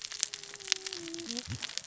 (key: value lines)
label: biophony, cascading saw
recorder: SoundTrap 600 or HydroMoth